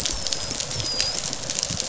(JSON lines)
{"label": "biophony, dolphin", "recorder": "SoundTrap 500"}